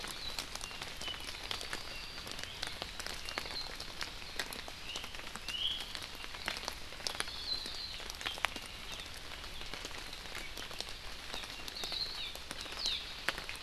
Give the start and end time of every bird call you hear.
0.6s-2.2s: Apapane (Himatione sanguinea)
5.4s-5.8s: Iiwi (Drepanis coccinea)
7.2s-8.0s: Hawaii Akepa (Loxops coccineus)
11.7s-12.1s: Hawaii Akepa (Loxops coccineus)
12.1s-12.3s: Hawaii Amakihi (Chlorodrepanis virens)
12.7s-13.0s: Hawaii Amakihi (Chlorodrepanis virens)

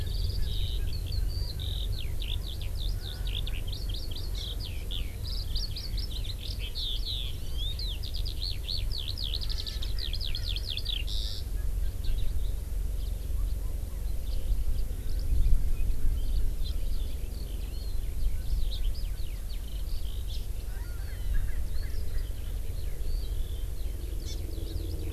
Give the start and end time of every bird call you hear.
0.0s-0.5s: Erckel's Francolin (Pternistis erckelii)
0.0s-11.4s: Eurasian Skylark (Alauda arvensis)
0.8s-0.9s: Erckel's Francolin (Pternistis erckelii)
2.9s-3.4s: Erckel's Francolin (Pternistis erckelii)
4.3s-4.4s: Hawaii Amakihi (Chlorodrepanis virens)
9.4s-12.1s: Erckel's Francolin (Pternistis erckelii)
12.0s-12.3s: Eurasian Skylark (Alauda arvensis)
16.1s-16.6s: Hawaii Amakihi (Chlorodrepanis virens)
16.1s-25.1s: Eurasian Skylark (Alauda arvensis)
17.6s-18.0s: Hawaii Amakihi (Chlorodrepanis virens)
20.6s-22.6s: Erckel's Francolin (Pternistis erckelii)
24.2s-24.3s: Hawaii Amakihi (Chlorodrepanis virens)

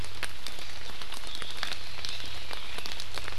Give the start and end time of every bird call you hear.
1.3s-1.8s: Omao (Myadestes obscurus)

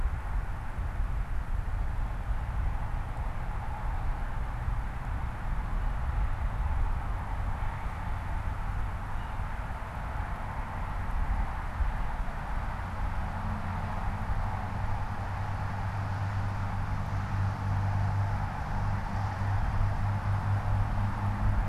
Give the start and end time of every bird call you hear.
8.9s-9.4s: unidentified bird

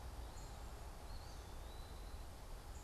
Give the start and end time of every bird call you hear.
0.0s-2.8s: unidentified bird
1.1s-2.1s: Eastern Wood-Pewee (Contopus virens)

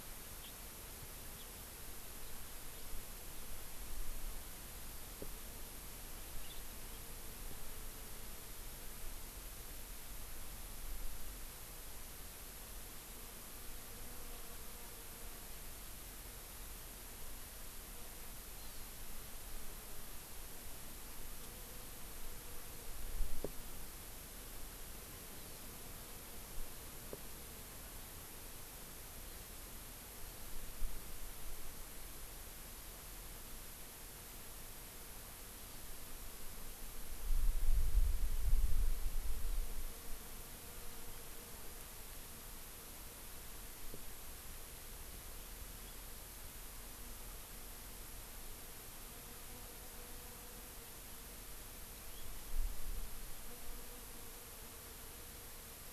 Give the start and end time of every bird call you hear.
0.4s-0.5s: Hawaii Amakihi (Chlorodrepanis virens)
1.4s-1.5s: Hawaii Amakihi (Chlorodrepanis virens)
6.4s-6.6s: Hawaii Amakihi (Chlorodrepanis virens)
18.6s-18.9s: Hawaii Amakihi (Chlorodrepanis virens)
25.3s-25.7s: Hawaii Amakihi (Chlorodrepanis virens)
35.6s-35.8s: Hawaii Amakihi (Chlorodrepanis virens)
45.8s-46.0s: Hawaii Amakihi (Chlorodrepanis virens)
52.0s-52.3s: Hawaii Amakihi (Chlorodrepanis virens)

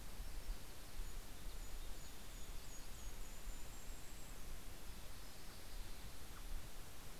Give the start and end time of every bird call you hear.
0.1s-4.8s: Golden-crowned Kinglet (Regulus satrapa)
1.2s-3.4s: Mountain Chickadee (Poecile gambeli)
4.0s-7.1s: Mountain Chickadee (Poecile gambeli)
5.2s-6.8s: American Robin (Turdus migratorius)

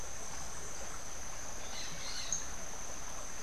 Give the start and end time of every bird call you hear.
1.4s-2.6s: Crimson-fronted Parakeet (Psittacara finschi)

